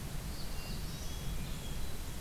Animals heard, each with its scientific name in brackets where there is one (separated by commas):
Black-throated Blue Warbler (Setophaga caerulescens), Hermit Thrush (Catharus guttatus)